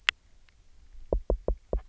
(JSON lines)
{"label": "biophony, knock", "recorder": "SoundTrap 300"}